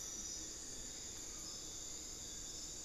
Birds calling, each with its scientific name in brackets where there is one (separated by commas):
Bartlett's Tinamou (Crypturellus bartletti), Amazonian Barred-Woodcreeper (Dendrocolaptes certhia), Buckley's Forest-Falcon (Micrastur buckleyi)